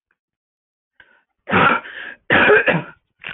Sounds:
Cough